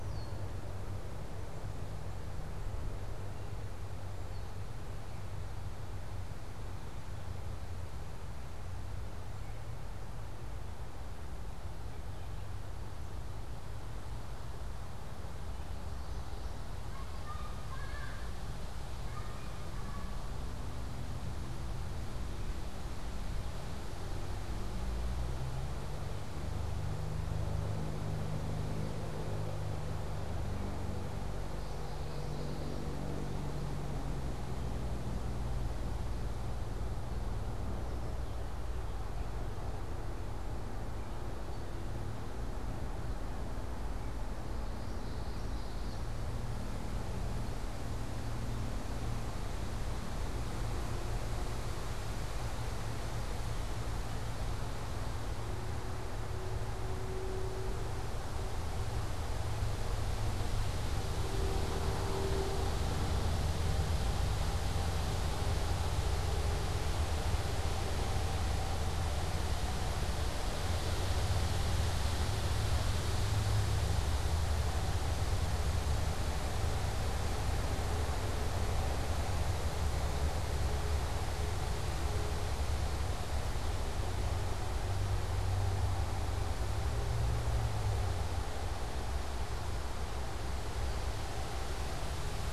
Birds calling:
Common Yellowthroat (Geothlypis trichas), unidentified bird, Red-winged Blackbird (Agelaius phoeniceus)

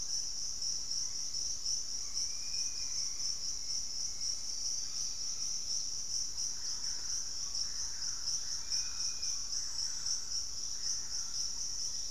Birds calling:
Ringed Woodpecker (Celeus torquatus), Dusky-capped Flycatcher (Myiarchus tuberculifer), Black-faced Antthrush (Formicarius analis), Thrush-like Wren (Campylorhynchus turdinus)

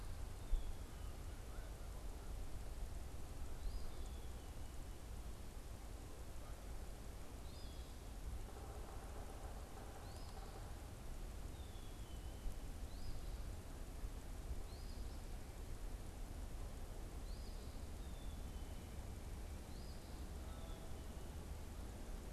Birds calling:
Black-capped Chickadee (Poecile atricapillus), Yellow-bellied Sapsucker (Sphyrapicus varius), Eastern Phoebe (Sayornis phoebe)

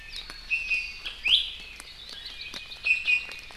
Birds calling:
Iiwi (Drepanis coccinea), Hawaii Creeper (Loxops mana)

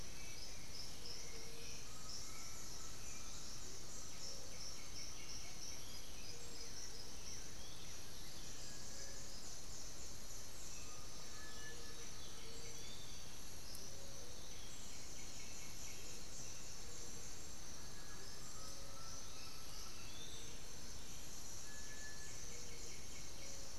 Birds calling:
Piratic Flycatcher (Legatus leucophaius), Black-billed Thrush (Turdus ignobilis), Blue-gray Saltator (Saltator coerulescens), Undulated Tinamou (Crypturellus undulatus), White-winged Becard (Pachyramphus polychopterus), Little Tinamou (Crypturellus soui)

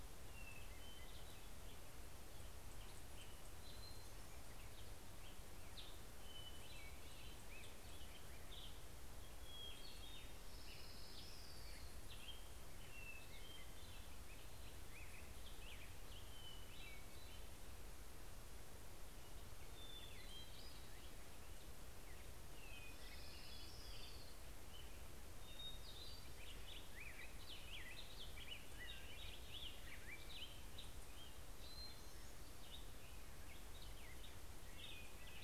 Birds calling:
Black-headed Grosbeak (Pheucticus melanocephalus), Hermit Thrush (Catharus guttatus), Orange-crowned Warbler (Leiothlypis celata)

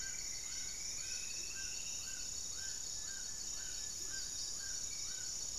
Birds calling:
Plain-winged Antshrike (Thamnophilus schistaceus), Buff-breasted Wren (Cantorchilus leucotis), Amazonian Trogon (Trogon ramonianus), Amazonian Motmot (Momotus momota), Spot-winged Antshrike (Pygiptila stellaris), Striped Woodcreeper (Xiphorhynchus obsoletus)

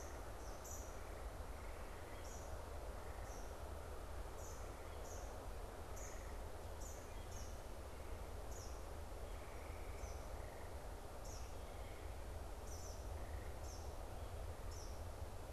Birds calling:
Eastern Kingbird (Tyrannus tyrannus), Wood Thrush (Hylocichla mustelina)

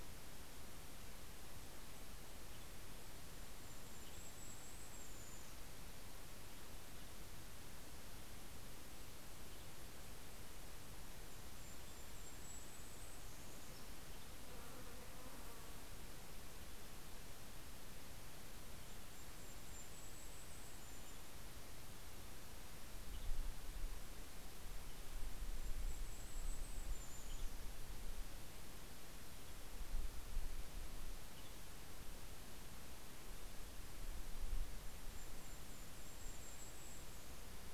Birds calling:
Golden-crowned Kinglet (Regulus satrapa), Western Tanager (Piranga ludoviciana)

